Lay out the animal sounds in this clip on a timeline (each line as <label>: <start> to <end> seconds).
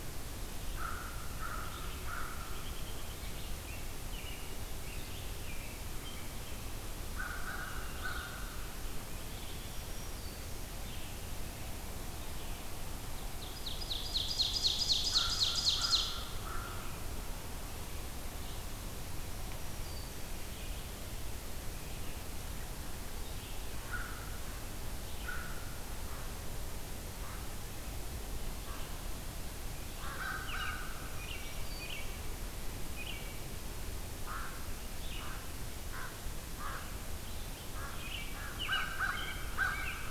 Red-eyed Vireo (Vireo olivaceus): 0.0 to 38.3 seconds
American Crow (Corvus brachyrhynchos): 0.7 to 2.8 seconds
American Robin (Turdus migratorius): 2.4 to 6.7 seconds
American Crow (Corvus brachyrhynchos): 7.1 to 8.6 seconds
Black-throated Green Warbler (Setophaga virens): 9.6 to 10.6 seconds
Ovenbird (Seiurus aurocapilla): 13.1 to 16.2 seconds
American Crow (Corvus brachyrhynchos): 15.2 to 17.0 seconds
Black-throated Green Warbler (Setophaga virens): 19.2 to 20.4 seconds
American Crow (Corvus brachyrhynchos): 23.9 to 28.9 seconds
American Crow (Corvus brachyrhynchos): 29.9 to 31.1 seconds
Black-throated Green Warbler (Setophaga virens): 31.0 to 32.1 seconds
American Crow (Corvus brachyrhynchos): 34.2 to 39.9 seconds
American Robin (Turdus migratorius): 37.9 to 40.1 seconds